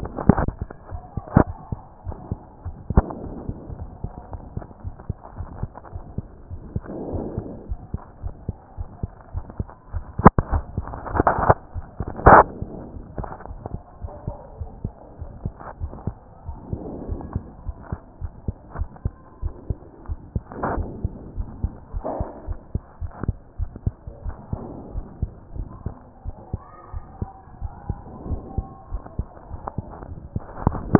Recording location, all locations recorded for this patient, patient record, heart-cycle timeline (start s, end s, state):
aortic valve (AV)
aortic valve (AV)+pulmonary valve (PV)+tricuspid valve (TV)+mitral valve (MV)
#Age: Child
#Sex: Female
#Height: 116.0 cm
#Weight: 17.5 kg
#Pregnancy status: False
#Murmur: Absent
#Murmur locations: nan
#Most audible location: nan
#Systolic murmur timing: nan
#Systolic murmur shape: nan
#Systolic murmur grading: nan
#Systolic murmur pitch: nan
#Systolic murmur quality: nan
#Diastolic murmur timing: nan
#Diastolic murmur shape: nan
#Diastolic murmur grading: nan
#Diastolic murmur pitch: nan
#Diastolic murmur quality: nan
#Outcome: Abnormal
#Campaign: 2014 screening campaign
0.00	17.51	unannotated
17.51	17.66	diastole
17.66	17.76	S1
17.76	17.90	systole
17.90	18.00	S2
18.00	18.20	diastole
18.20	18.32	S1
18.32	18.46	systole
18.46	18.56	S2
18.56	18.76	diastole
18.76	18.88	S1
18.88	19.04	systole
19.04	19.14	S2
19.14	19.42	diastole
19.42	19.54	S1
19.54	19.68	systole
19.68	19.78	S2
19.78	20.08	diastole
20.08	20.18	S1
20.18	20.34	systole
20.34	20.42	S2
20.42	20.73	diastole
20.73	20.88	S1
20.88	21.02	systole
21.02	21.12	S2
21.12	21.36	diastole
21.36	21.48	S1
21.48	21.62	systole
21.62	21.72	S2
21.72	21.94	diastole
21.94	22.04	S1
22.04	22.18	systole
22.18	22.28	S2
22.28	22.48	diastole
22.48	22.58	S1
22.58	22.74	systole
22.74	22.82	S2
22.82	23.02	diastole
23.02	23.12	S1
23.12	23.26	systole
23.26	23.36	S2
23.36	23.58	diastole
23.58	23.70	S1
23.70	23.84	systole
23.84	23.94	S2
23.94	24.24	diastole
24.24	24.36	S1
24.36	24.52	systole
24.52	24.62	S2
24.62	24.94	diastole
24.94	25.06	S1
25.06	25.20	systole
25.20	25.30	S2
25.30	25.56	diastole
25.56	25.68	S1
25.68	25.84	systole
25.84	25.94	S2
25.94	26.26	diastole
26.26	26.36	S1
26.36	26.52	systole
26.52	26.62	S2
26.62	26.92	diastole
26.92	27.04	S1
27.04	27.20	systole
27.20	27.30	S2
27.30	27.62	diastole
27.62	27.72	S1
27.72	27.88	systole
27.88	27.98	S2
27.98	28.28	diastole
28.28	28.40	S1
28.40	28.56	systole
28.56	28.66	S2
28.66	28.92	diastole
28.92	29.02	S1
29.02	29.18	systole
29.18	29.28	S2
29.28	29.50	diastole
29.50	30.99	unannotated